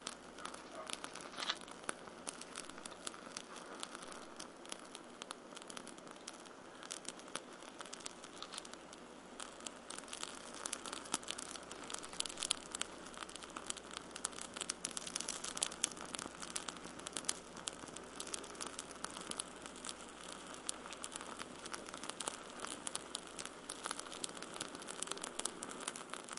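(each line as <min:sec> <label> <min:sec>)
0:00.0 A loud, continuous crackling from a fire. 0:26.4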